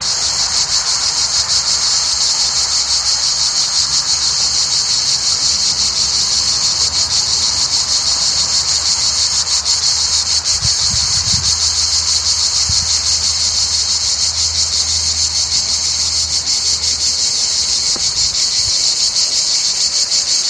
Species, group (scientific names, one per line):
Cicada orni
Cicadidae